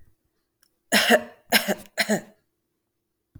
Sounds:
Throat clearing